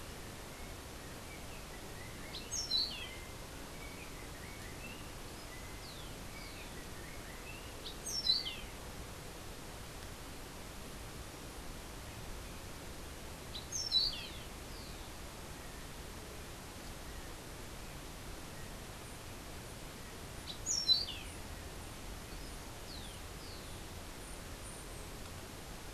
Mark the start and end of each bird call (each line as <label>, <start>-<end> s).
Yellow-backed Oriole (Icterus chrysater), 0.7-7.9 s
Orange-billed Nightingale-Thrush (Catharus aurantiirostris), 2.2-3.2 s
Orange-billed Nightingale-Thrush (Catharus aurantiirostris), 7.8-8.6 s
Orange-billed Nightingale-Thrush (Catharus aurantiirostris), 13.4-14.4 s
Orange-billed Nightingale-Thrush (Catharus aurantiirostris), 20.4-21.3 s